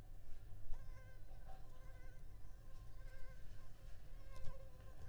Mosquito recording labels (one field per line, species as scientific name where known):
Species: Anopheles arabiensis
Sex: female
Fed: unfed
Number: one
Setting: cup